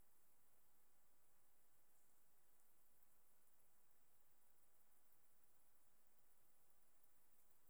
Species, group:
Conocephalus fuscus, Orthoptera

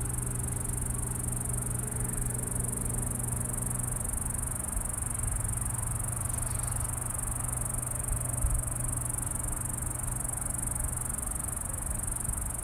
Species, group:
Okanagana canadensis, Cicadidae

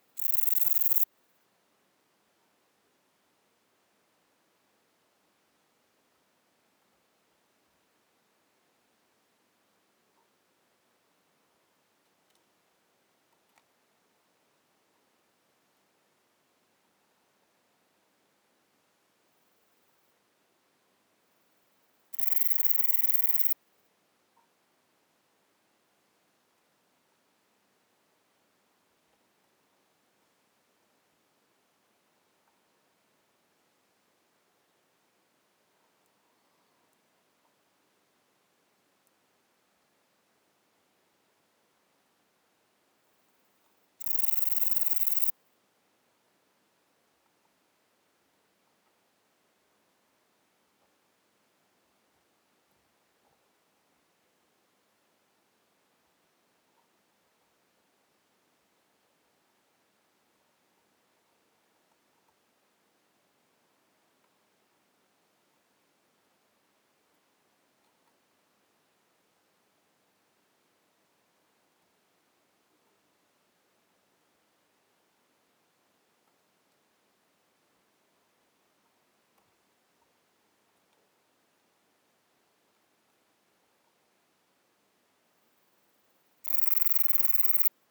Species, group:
Antaxius hispanicus, Orthoptera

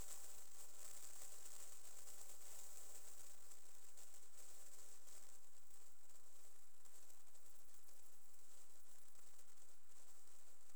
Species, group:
Tettigonia viridissima, Orthoptera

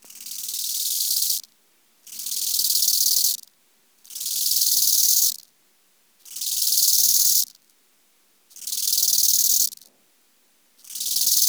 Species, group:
Chorthippus eisentrauti, Orthoptera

